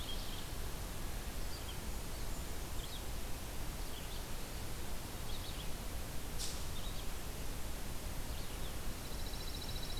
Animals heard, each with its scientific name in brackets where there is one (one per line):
Red-eyed Vireo (Vireo olivaceus)
Ovenbird (Seiurus aurocapilla)
Pine Warbler (Setophaga pinus)